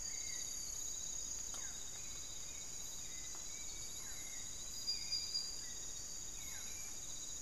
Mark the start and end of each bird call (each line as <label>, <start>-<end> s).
Barred Forest-Falcon (Micrastur ruficollis), 0.0-7.4 s
Hauxwell's Thrush (Turdus hauxwelli), 0.0-7.4 s